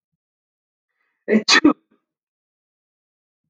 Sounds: Sneeze